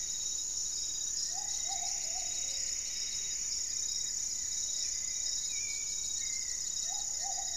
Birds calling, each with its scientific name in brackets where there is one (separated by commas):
Goeldi's Antbird (Akletos goeldii), Hauxwell's Thrush (Turdus hauxwelli), Plumbeous Antbird (Myrmelastes hyperythrus), Gray-fronted Dove (Leptotila rufaxilla), Plumbeous Pigeon (Patagioenas plumbea)